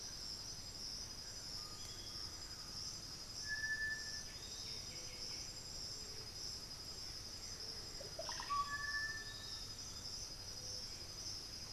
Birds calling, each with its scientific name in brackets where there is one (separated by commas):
Piratic Flycatcher (Legatus leucophaius), Undulated Tinamou (Crypturellus undulatus), White-winged Becard (Pachyramphus polychopterus), Thrush-like Wren (Campylorhynchus turdinus), Russet-backed Oropendola (Psarocolius angustifrons), unidentified bird